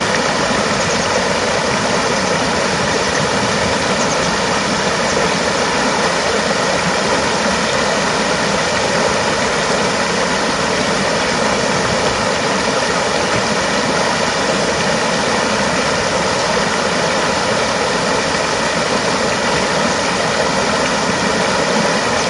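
0.0s Gentle river waves flowing. 22.3s
0.0s River waves. 22.3s
0.7s A bird is chirping. 1.5s
3.8s A bird chirps. 4.4s

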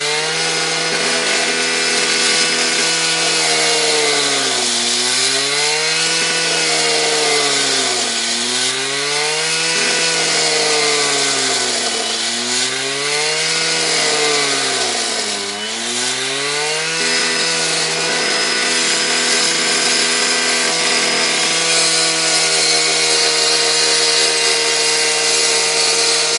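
0.0s A circular saw cuts wood loudly. 26.4s

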